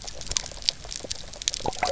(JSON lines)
{"label": "biophony, grazing", "recorder": "SoundTrap 300"}